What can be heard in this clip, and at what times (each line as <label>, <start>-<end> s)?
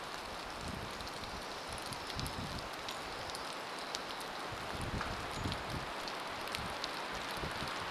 rain, 0-8 s
Pacific Wren song, 2-4 s